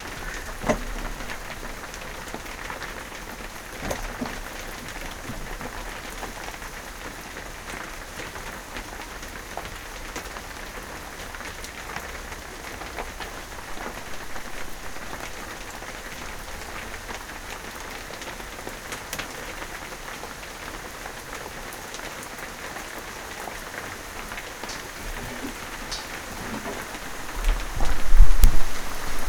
does the rain stay steady?
yes